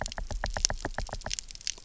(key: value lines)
label: biophony, knock
recorder: SoundTrap 300